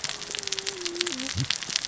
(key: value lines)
label: biophony, cascading saw
recorder: SoundTrap 600 or HydroMoth